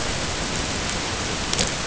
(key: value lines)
label: ambient
recorder: HydroMoth